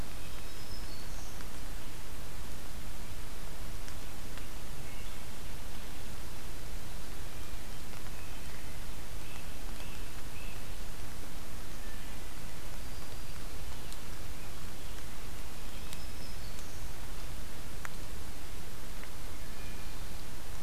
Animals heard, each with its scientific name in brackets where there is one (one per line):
Wood Thrush (Hylocichla mustelina)
Black-throated Green Warbler (Setophaga virens)
Great Crested Flycatcher (Myiarchus crinitus)